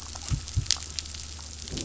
{"label": "anthrophony, boat engine", "recorder": "SoundTrap 500"}
{"label": "biophony, growl", "recorder": "SoundTrap 500"}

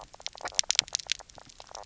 {"label": "biophony, knock croak", "recorder": "SoundTrap 300"}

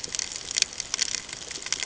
{"label": "ambient", "recorder": "HydroMoth"}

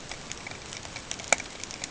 {"label": "ambient", "recorder": "HydroMoth"}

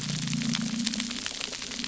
{"label": "anthrophony, boat engine", "recorder": "SoundTrap 300"}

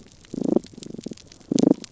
{"label": "biophony, damselfish", "recorder": "SoundTrap 300"}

